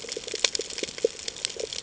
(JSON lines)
{"label": "ambient", "recorder": "HydroMoth"}